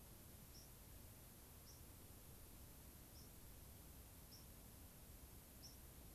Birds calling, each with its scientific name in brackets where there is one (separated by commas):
White-crowned Sparrow (Zonotrichia leucophrys)